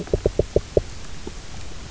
{"label": "biophony, knock", "recorder": "SoundTrap 300"}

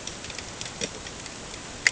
{"label": "ambient", "recorder": "HydroMoth"}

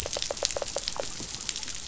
{"label": "biophony", "recorder": "SoundTrap 500"}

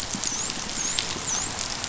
{"label": "biophony, dolphin", "recorder": "SoundTrap 500"}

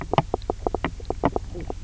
{"label": "biophony, knock croak", "recorder": "SoundTrap 300"}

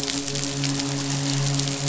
{"label": "biophony, midshipman", "recorder": "SoundTrap 500"}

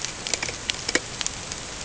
{"label": "ambient", "recorder": "HydroMoth"}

